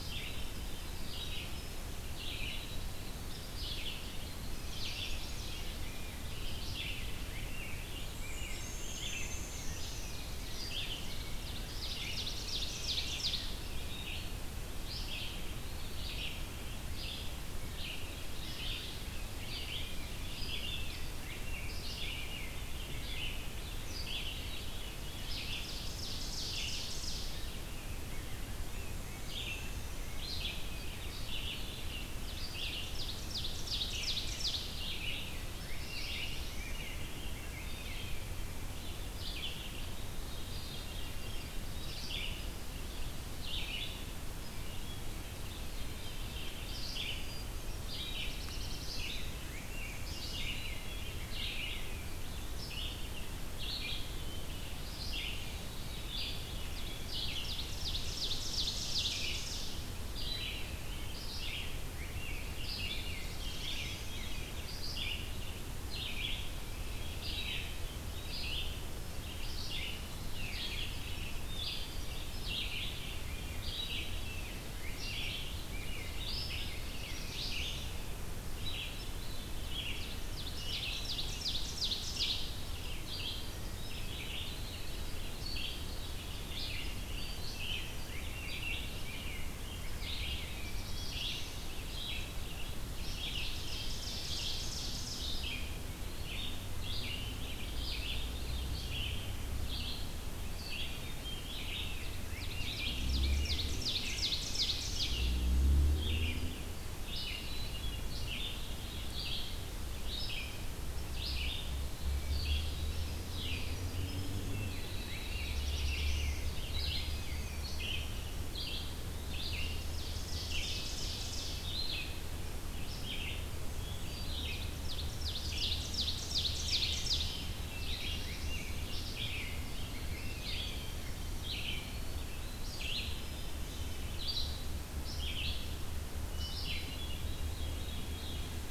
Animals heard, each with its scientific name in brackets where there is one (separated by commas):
Winter Wren (Troglodytes hiemalis), Chestnut-sided Warbler (Setophaga pensylvanica), Ovenbird (Seiurus aurocapilla), Veery (Catharus fuscescens), Rose-breasted Grosbeak (Pheucticus ludovicianus), Red-eyed Vireo (Vireo olivaceus), Hermit Thrush (Catharus guttatus), Black-and-white Warbler (Mniotilta varia), Black-throated Blue Warbler (Setophaga caerulescens), Eastern Wood-Pewee (Contopus virens)